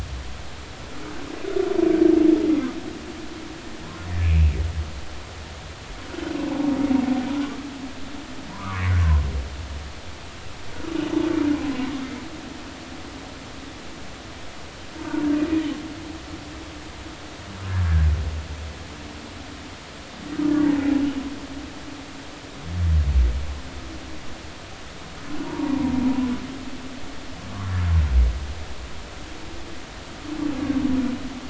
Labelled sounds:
4.2	4.5	humpback whale, 2.1 to 2.8 kHz
8.5	8.9	humpback whale, 0.93 to 1.5 kHz
15.0	15.2	humpback whale, 0.86 to 0.96 kHz
20.9	21.2	humpback whale, 2.9 to 3.0 kHz
25.4	25.9	humpback whale, 0.86 to 1.1 kHz

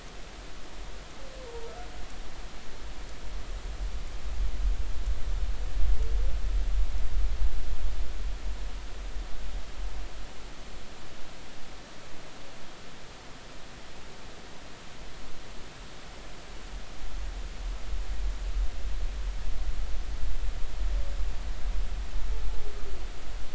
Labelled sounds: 1.5	1.7	humpback whale, 0.90 to 0.99 kHz

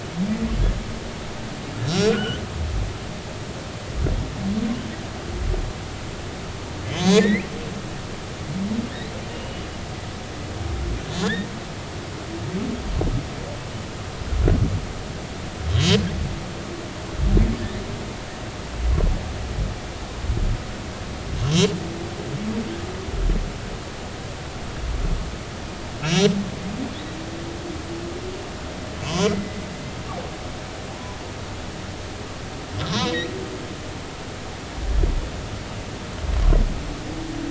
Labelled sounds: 1.8	2.4	humpback whale, 1.3 to 5.8 kHz
7.0	7.4	humpback whale, 1.6 to 3.7 kHz
9.3	9.7	humpback whale, 2.8 to 3.0 kHz
11.2	11.5	humpback whale, 1.6 to 1.9 kHz
15.7	16.0	humpback whale, 3.1 to 3.3 kHz
26.0	26.3	humpback whale, 2.5 to 5.9 kHz
29.1	29.6	humpback whale, 0.93 to 2.1 kHz
30.9	31.2	humpback whale, 0.80 to 1.1 kHz
32.9	33.3	humpback whale, 0.90 to 4.2 kHz

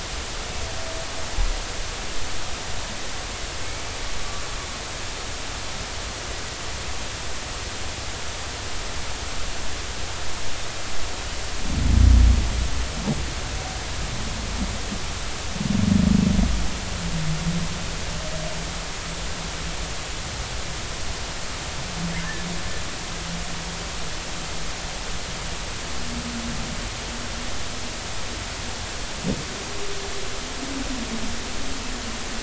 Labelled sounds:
22.2	22.5	humpback whale, 1.6 to 1.9 kHz

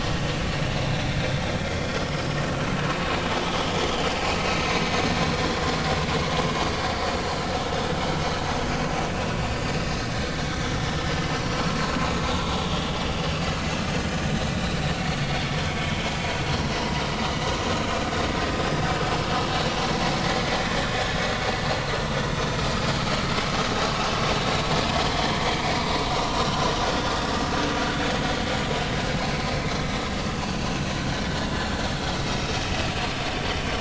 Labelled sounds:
0.0	0.4	vessel noise, 2.7 to 2.9 kHz
1.6	2.0	vessel noise, 3.2 to 3.5 kHz
6.5	6.8	vessel noise, 4.6 to 4.7 kHz
9.5	9.8	vessel noise, 4.5 to 4.7 kHz
25.5	25.8	vessel noise, 2.1 to 2.3 kHz
26.4	26.7	vessel noise, 1.3 to 1.5 kHz

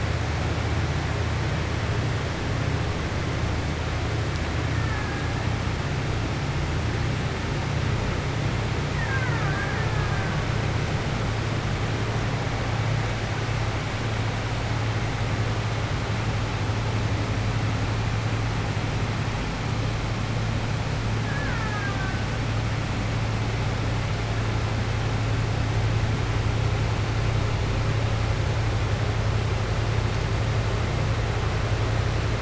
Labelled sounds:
21.2	22.2	killer whale, Bigg's (transient), 0.84 to 2.2 kHz

